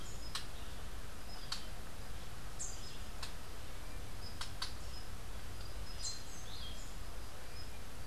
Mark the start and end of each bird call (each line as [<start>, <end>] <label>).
[2.19, 7.09] Rufous-capped Warbler (Basileuterus rufifrons)